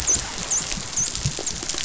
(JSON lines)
{"label": "biophony, dolphin", "recorder": "SoundTrap 500"}